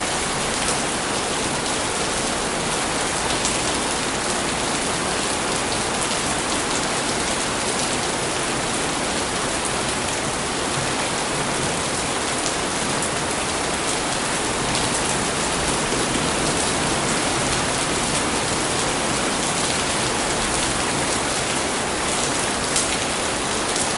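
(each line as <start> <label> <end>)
0.0 A deep wind blows steadily outdoors. 24.0
0.0 Raindrops fall steadily with a soft, rhythmic pattern. 24.0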